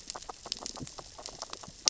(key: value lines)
label: biophony, grazing
recorder: SoundTrap 600 or HydroMoth